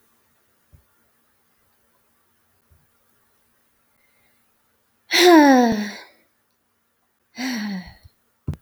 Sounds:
Sigh